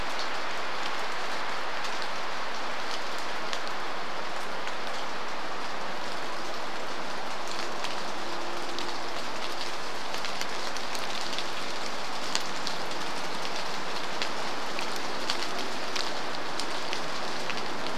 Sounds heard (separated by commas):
vehicle engine, rain